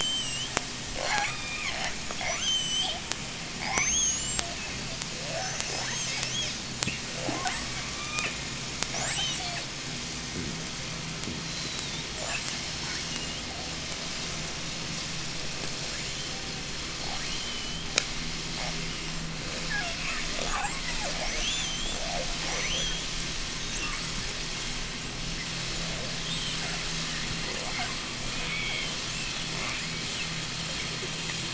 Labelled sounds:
13.5	16.7	vessel noise, 0.07 to 8.0 kHz
17.0	17.9	killer whale, J pod, 0.40 to 3.5 kHz
19.5	23.7	killer whale, J pod, 0.18 to 8.0 kHz
26.0	29.4	killer whale, 1.8 to 4.2 kHz

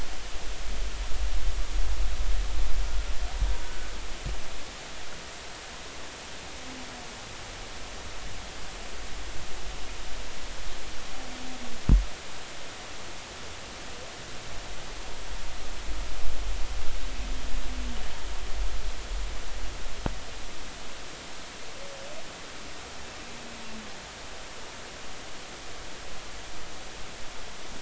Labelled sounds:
3.6	3.9	humpback whale, 1.4 to 1.5 kHz

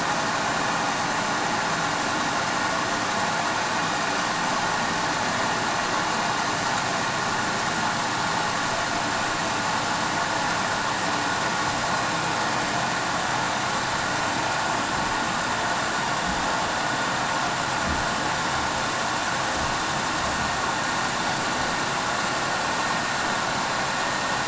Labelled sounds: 15.9	16.2	vessel noise, 5.6 to 5.7 kHz

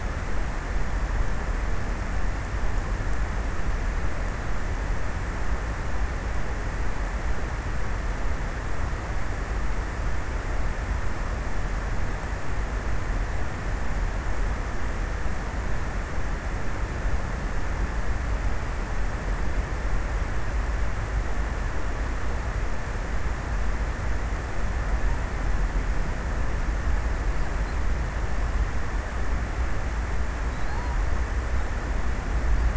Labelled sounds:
29.7	31.8	killer whale, offshore, 3.0 to 4.9 kHz

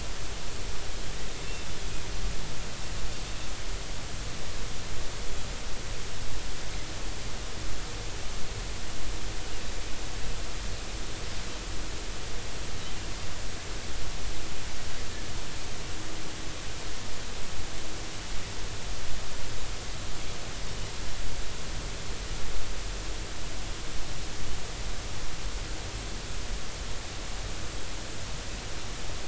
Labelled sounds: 1.4	1.7	Pacific white-sided dolphin, 2.6 to 2.8 kHz

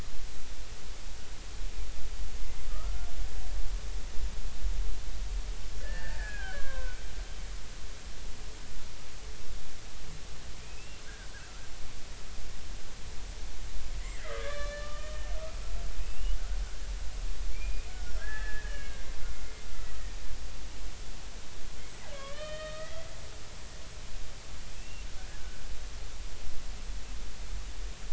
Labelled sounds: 2.7	2.9	killer whale, Bigg's (transient), 1.1 to 1.4 kHz
5.8	7.0	killer whale, Bigg's (transient), 0.96 to 2.6 kHz
10.5	11.0	killer whale, Bigg's (transient), 2.2 to 2.8 kHz
14.0	15.3	killer whale, Bigg's (transient), 1.1 to 4.2 kHz
16.0	16.9	killer whale, Bigg's (transient), 1.4 to 3.1 kHz
17.5	19.1	killer whale, Bigg's (transient), 1.4 to 3.1 kHz
22.1	23.1	killer whale, Bigg's (transient), 1.0 to 4.5 kHz
24.8	25.0	killer whale, Bigg's (transient), 2.6 to 2.8 kHz

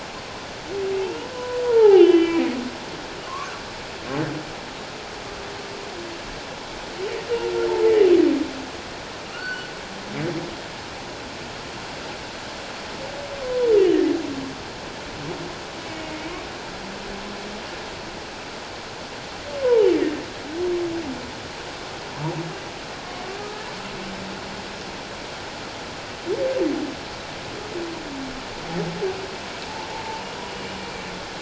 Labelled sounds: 1.0	3.5	humpback whale, 0.78 to 3.5 kHz
9.3	9.7	humpback whale, 1.2 to 4.6 kHz
13.4	13.7	humpback whale, 0.91 to 1.1 kHz
16.0	16.3	humpback whale, 2.1 to 2.3 kHz
19.6	19.9	humpback whale, 0.81 to 1.1 kHz
23.4	23.7	humpback whale, 1.2 to 1.4 kHz

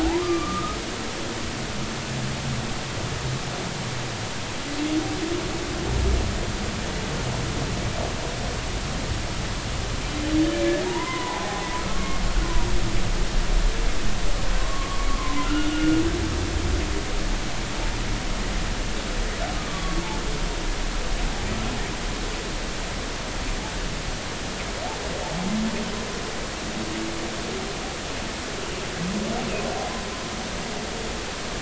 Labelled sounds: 0.0	0.8	humpback whale, 0.80 to 1.3 kHz
10.8	12.2	humpback whale, 0.80 to 2.1 kHz
14.6	16.0	humpback whale, 0.96 to 1.5 kHz
19.7	20.0	humpback whale, 1.1 to 1.2 kHz

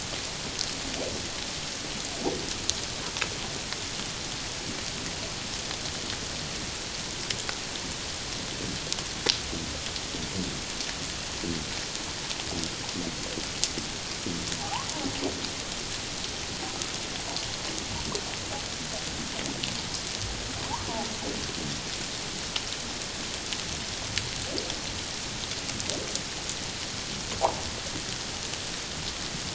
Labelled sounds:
14.6	14.9	humpback whale, 0.78 to 1.2 kHz

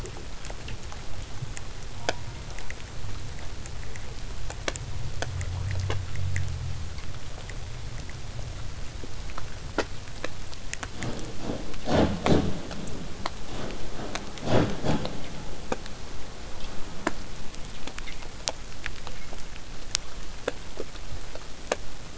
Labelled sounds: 1.9	2.7	killer whale, southern resident, J pod, call S04, 0.35 to 2.3 kHz
16.0	21.0	vessel noise, 0 to 8.0 kHz

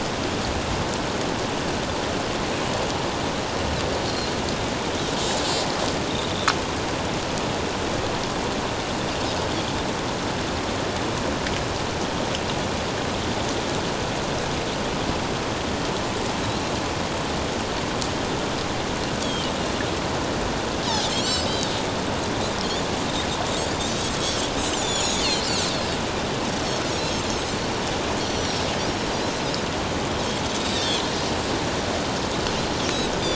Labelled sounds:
20.8	21.7	Pacific white-sided dolphin, 3.7 to 7.8 kHz
23.8	25.5	Pacific white-sided dolphin, 3.5 to 7.8 kHz
27.0	28.7	Pacific white-sided dolphin, 5.2 to 6.0 kHz
30.6	31.1	Pacific white-sided dolphin, 3.0 to 4.4 kHz

